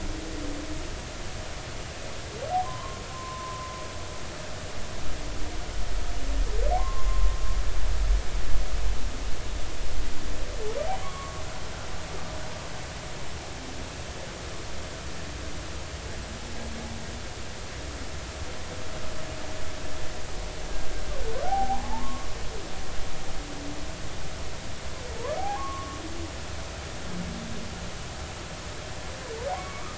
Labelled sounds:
2.6	3.7	humpback whale, 0.93 to 1.1 kHz
6.7	7.3	humpback whale, 0.80 to 1.2 kHz
11.0	11.4	humpback whale, 0.96 to 1.2 kHz
21.4	22.3	humpback whale, 0.80 to 1.2 kHz
25.4	26.0	humpback whale, 0.80 to 1.2 kHz
29.5	29.9	humpback whale, 0.80 to 2.3 kHz

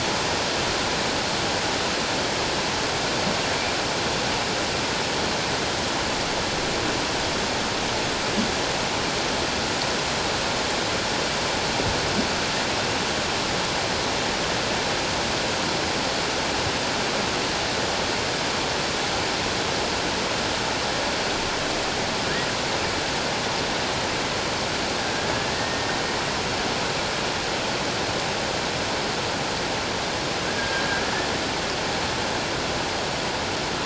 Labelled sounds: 25.5	26.0	humpback whale, 1.7 to 1.9 kHz
30.4	31.0	humpback whale, 1.5 to 1.8 kHz

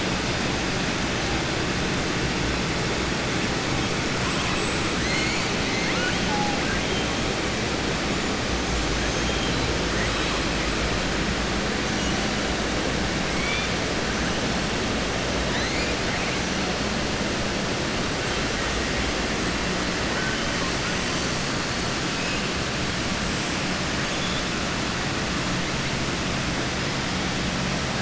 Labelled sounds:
5.6	6.2	killer whale, southern resident, 0.52 to 4.3 kHz
6.6	7.0	killer whale, southern resident, 1.5 to 3.2 kHz

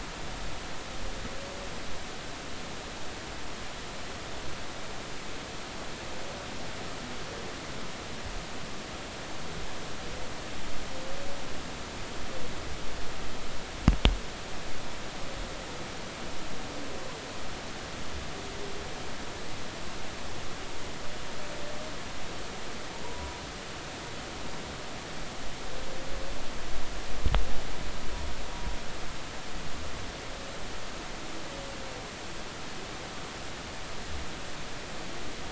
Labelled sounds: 23.0	23.4	humpback whale, 0.93 to 1.0 kHz

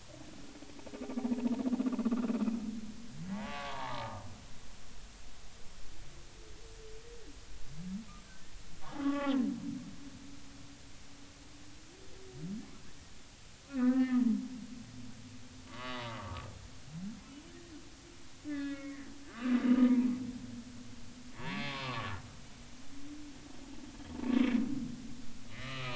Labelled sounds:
3.3	4.2	humpback whale, 0.80 to 1.3 kHz
9.0	9.4	humpback whale, 0.80 to 2.0 kHz
13.7	14.2	humpback whale, 0.96 to 1.9 kHz
15.7	16.4	humpback whale, 0.93 to 1.3 kHz
18.5	20.0	humpback whale, 1.1 to 2.6 kHz
21.7	22.1	humpback whale, 0.90 to 1.2 kHz
25.6	25.9	humpback whale, 1.2 to 1.3 kHz

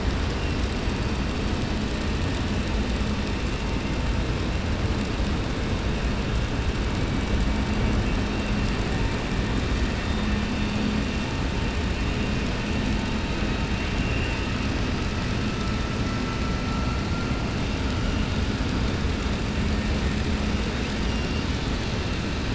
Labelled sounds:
21.0	21.5	killer whale, 2.7 to 3.8 kHz

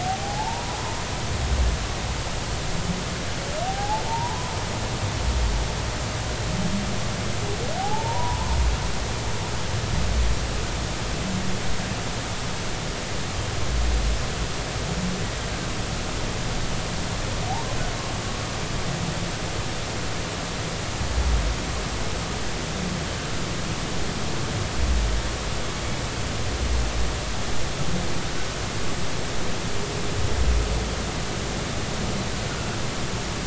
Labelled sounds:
0.0	0.8	humpback whale, 0.80 to 1.0 kHz
3.7	4.5	humpback whale, 0.80 to 1.1 kHz
7.8	8.4	humpback whale, 0.80 to 1.1 kHz
17.5	17.8	humpback whale, 0.80 to 1.1 kHz

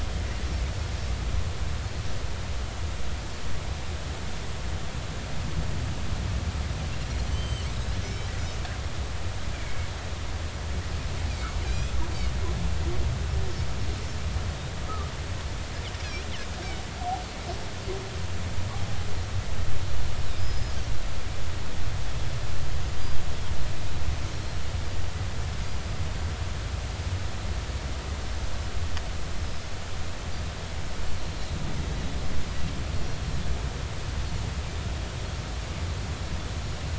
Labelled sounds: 7.3	7.7	Pacific white-sided dolphin, 2.9 to 6.3 kHz
9.5	9.9	Pacific white-sided dolphin, 2.1 to 2.4 kHz
11.3	11.9	Pacific white-sided dolphin, 2.1 to 2.7 kHz
20.4	20.8	Pacific white-sided dolphin, 4.9 to 5.2 kHz
31.1	31.4	Pacific white-sided dolphin, 4.1 to 4.5 kHz

